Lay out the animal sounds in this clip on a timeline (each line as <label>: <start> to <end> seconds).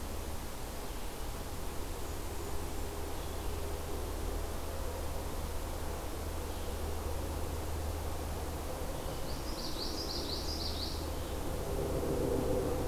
Blackburnian Warbler (Setophaga fusca): 1.8 to 2.9 seconds
Common Yellowthroat (Geothlypis trichas): 9.1 to 11.0 seconds